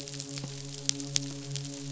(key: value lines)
label: biophony, midshipman
recorder: SoundTrap 500